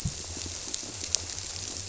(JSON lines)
{"label": "biophony", "recorder": "SoundTrap 300"}